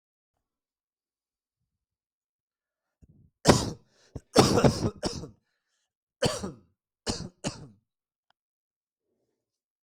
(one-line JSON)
{"expert_labels": [{"quality": "good", "cough_type": "dry", "dyspnea": false, "wheezing": false, "stridor": false, "choking": false, "congestion": false, "nothing": true, "diagnosis": "COVID-19", "severity": "mild"}], "age": 44, "gender": "male", "respiratory_condition": false, "fever_muscle_pain": false, "status": "symptomatic"}